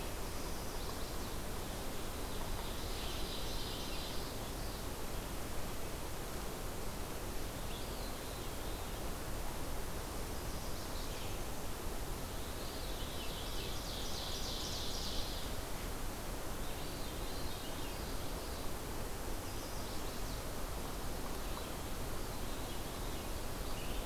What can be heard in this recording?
Chestnut-sided Warbler, Ovenbird, Veery, Red-eyed Vireo